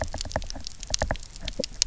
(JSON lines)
{"label": "biophony, knock", "recorder": "SoundTrap 300"}